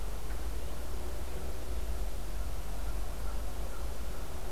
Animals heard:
forest ambience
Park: Acadia National Park